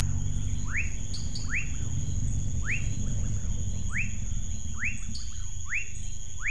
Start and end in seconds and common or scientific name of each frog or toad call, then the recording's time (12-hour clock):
0.5	6.5	rufous frog
1.1	1.6	dwarf tree frog
5.1	5.4	dwarf tree frog
7:00pm